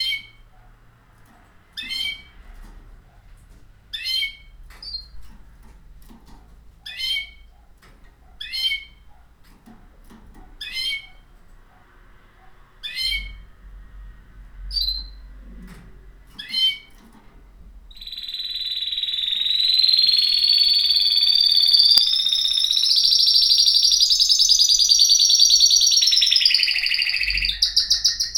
What is the bird doing?
chirping